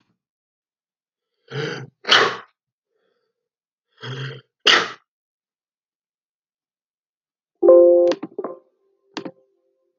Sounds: Sneeze